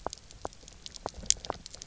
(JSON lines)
{"label": "biophony, knock croak", "recorder": "SoundTrap 300"}